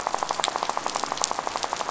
{"label": "biophony, rattle", "recorder": "SoundTrap 500"}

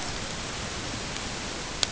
{"label": "ambient", "recorder": "HydroMoth"}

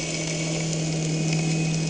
{"label": "anthrophony, boat engine", "recorder": "HydroMoth"}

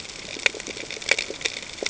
{"label": "ambient", "recorder": "HydroMoth"}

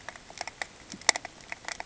{"label": "ambient", "recorder": "HydroMoth"}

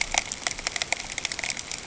{"label": "ambient", "recorder": "HydroMoth"}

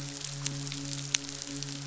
{"label": "biophony, midshipman", "recorder": "SoundTrap 500"}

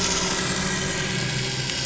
{"label": "anthrophony, boat engine", "recorder": "SoundTrap 500"}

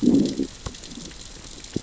{"label": "biophony, growl", "recorder": "SoundTrap 600 or HydroMoth"}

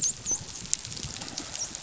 {"label": "biophony, dolphin", "recorder": "SoundTrap 500"}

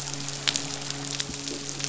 {"label": "biophony, midshipman", "recorder": "SoundTrap 500"}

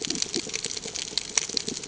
{"label": "ambient", "recorder": "HydroMoth"}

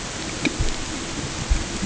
{"label": "ambient", "recorder": "HydroMoth"}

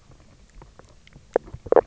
{"label": "biophony, knock croak", "recorder": "SoundTrap 300"}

